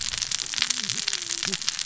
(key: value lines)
label: biophony, cascading saw
recorder: SoundTrap 600 or HydroMoth